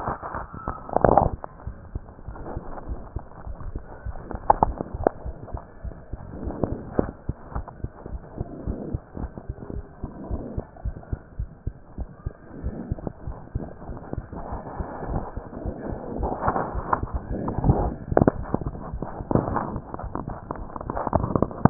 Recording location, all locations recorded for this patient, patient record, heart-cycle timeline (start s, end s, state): mitral valve (MV)
aortic valve (AV)+pulmonary valve (PV)+tricuspid valve (TV)+mitral valve (MV)
#Age: Child
#Sex: Male
#Height: 115.0 cm
#Weight: 23.1 kg
#Pregnancy status: False
#Murmur: Present
#Murmur locations: aortic valve (AV)+tricuspid valve (TV)
#Most audible location: tricuspid valve (TV)
#Systolic murmur timing: Early-systolic
#Systolic murmur shape: Decrescendo
#Systolic murmur grading: I/VI
#Systolic murmur pitch: Low
#Systolic murmur quality: Harsh
#Diastolic murmur timing: nan
#Diastolic murmur shape: nan
#Diastolic murmur grading: nan
#Diastolic murmur pitch: nan
#Diastolic murmur quality: nan
#Outcome: Normal
#Campaign: 2015 screening campaign
0.00	7.52	unannotated
7.52	7.64	S1
7.64	7.80	systole
7.80	7.92	S2
7.92	8.11	diastole
8.11	8.24	S1
8.24	8.37	systole
8.37	8.46	S2
8.46	8.64	diastole
8.64	8.78	S1
8.78	8.92	systole
8.92	9.02	S2
9.02	9.19	diastole
9.19	9.32	S1
9.32	9.47	systole
9.47	9.56	S2
9.56	9.72	diastole
9.72	9.84	S1
9.84	10.02	systole
10.02	10.10	S2
10.10	10.31	diastole
10.31	10.42	S1
10.42	10.56	systole
10.56	10.66	S2
10.66	10.84	diastole
10.84	10.96	S1
10.96	11.10	systole
11.10	11.20	S2
11.20	11.38	diastole
11.38	11.50	S1
11.50	11.64	systole
11.64	11.74	S2
11.74	11.94	diastole
11.94	12.08	S1
12.08	12.22	systole
12.22	12.34	S2
12.34	12.63	diastole
12.63	12.76	S1
12.76	12.89	systole
12.89	13.00	S2
13.00	13.26	diastole
13.26	13.38	S1
13.38	13.56	systole
13.56	13.66	S2
13.66	21.70	unannotated